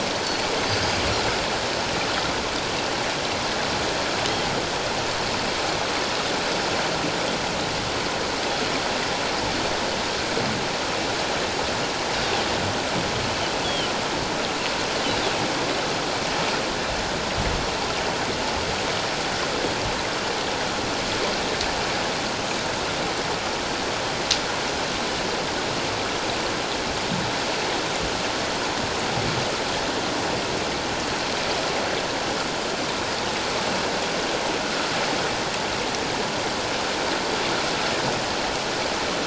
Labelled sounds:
13.6	13.9	Pacific white-sided dolphin, 2.9 to 3.5 kHz

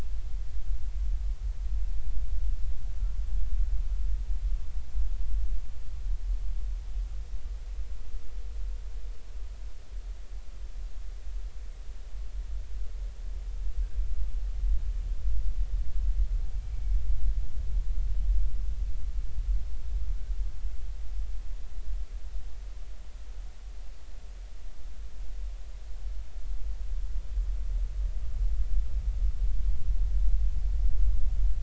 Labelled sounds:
16.6	17.0	killer whale, Bigg's (transient), 2.2 to 2.4 kHz

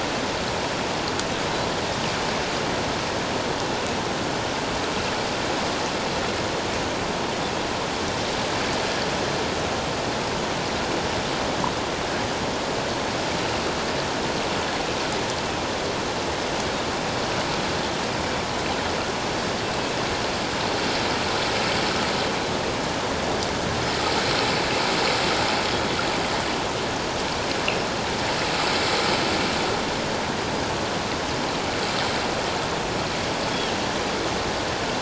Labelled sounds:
19.6	20.0	Pacific white-sided dolphin, 2.5 to 2.7 kHz

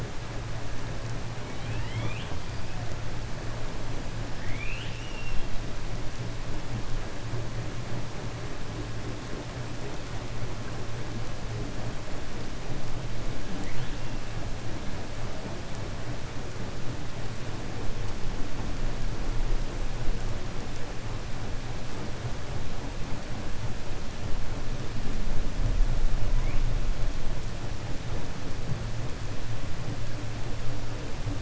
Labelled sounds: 4.3	5.5	killer whale, 1.6 to 4.2 kHz

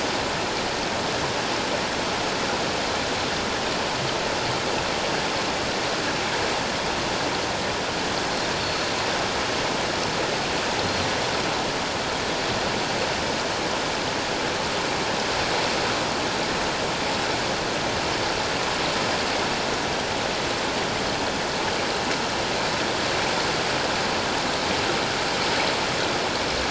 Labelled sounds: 8.6	8.9	Pacific white-sided dolphin, 4.2 to 4.5 kHz

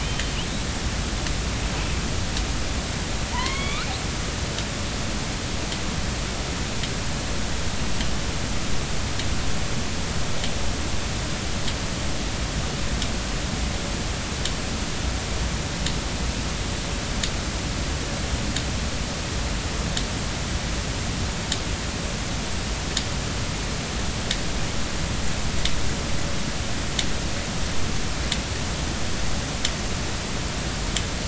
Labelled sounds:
0.0	0.4	killer whale, northern resident, A clan, AB subclan, call N07iii, 2.9 to 3.2 kHz
3.3	3.9	killer whale, northern resident, A clan, AB subclan, call N16, 0.86 to 3.6 kHz

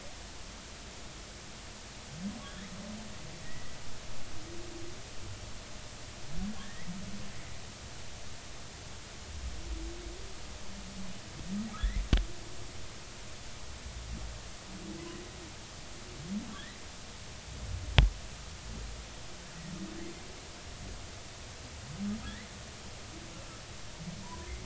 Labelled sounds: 2.4	2.7	humpback whale, 3.2 to 3.5 kHz
3.4	3.8	humpback whale, 1.8 to 2.0 kHz
6.6	7.0	humpback whale, 1.6 to 2.3 kHz
11.8	12.0	humpback whale, 1.6 to 2.1 kHz
22.2	22.5	humpback whale, 1.6 to 2.1 kHz
24.2	24.5	humpback whale, 0.90 to 1.1 kHz

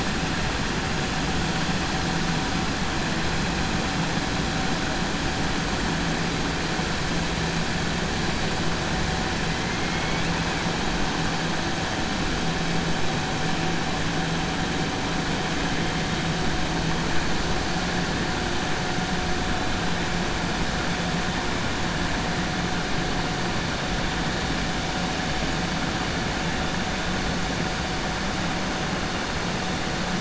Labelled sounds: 9.7	10.2	killer whale, 1.4 to 2.7 kHz

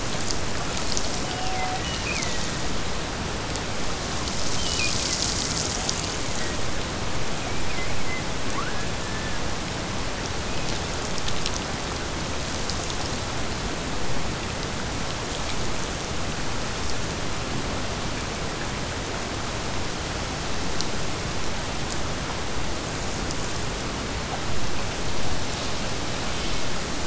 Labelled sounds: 1.2	2.8	killer whale, Bigg's (transient), Gulf of Alaska transient, 1.7 to 3.2 kHz
4.5	5.4	killer whale, Bigg's (transient), Gulf of Alaska transient, 1.7 to 3.3 kHz

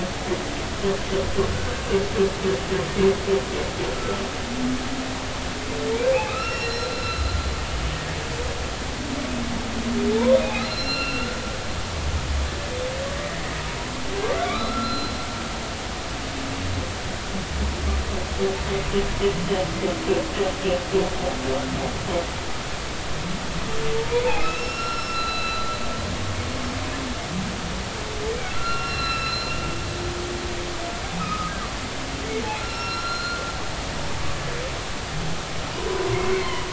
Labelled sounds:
4.0	4.2	humpback whale, 1.3 to 1.4 kHz
6.1	7.2	humpback whale, 1.2 to 5.5 kHz
10.5	11.4	humpback whale, 1.3 to 5.6 kHz
13.1	13.4	humpback whale, 1.8 to 2.0 kHz
14.4	15.1	humpback whale, 1.1 to 4.1 kHz
24.0	25.7	humpback whale, 0.86 to 5.5 kHz
28.5	29.5	humpback whale, 1.2 to 5.6 kHz
31.2	31.5	humpback whale, 1.2 to 1.3 kHz
32.6	33.4	humpback whale, 1.3 to 5.6 kHz
35.7	36.6	humpback whale, 0.86 to 2.3 kHz

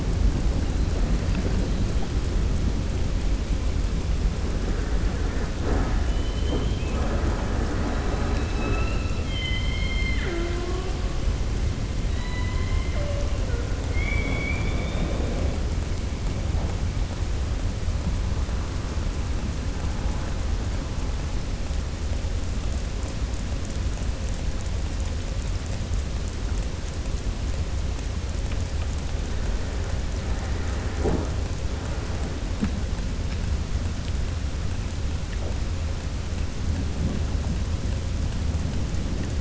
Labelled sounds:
12.0	12.8	killer whale, southern resident, 0.99 to 4.0 kHz

